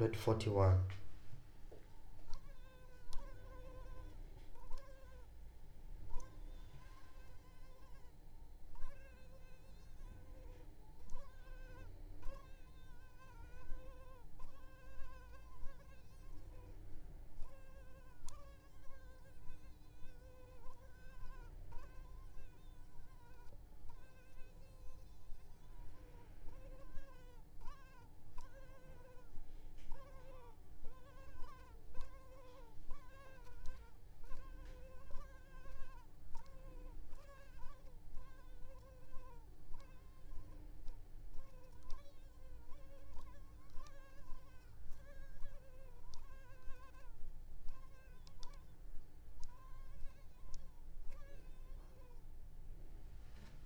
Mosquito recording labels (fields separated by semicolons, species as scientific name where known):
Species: Culex pipiens complex; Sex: female; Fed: unfed; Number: one; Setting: cup